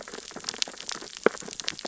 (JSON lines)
{"label": "biophony, sea urchins (Echinidae)", "recorder": "SoundTrap 600 or HydroMoth"}